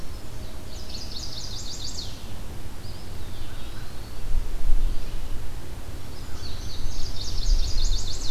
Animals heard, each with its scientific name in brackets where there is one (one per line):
Eastern Wood-Pewee (Contopus virens)
Chestnut-sided Warbler (Setophaga pensylvanica)
American Crow (Corvus brachyrhynchos)
Indigo Bunting (Passerina cyanea)